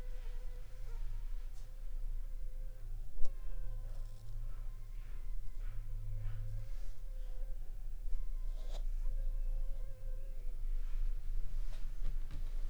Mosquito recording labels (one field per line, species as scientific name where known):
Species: Anopheles funestus s.s.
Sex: female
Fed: unfed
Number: one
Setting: cup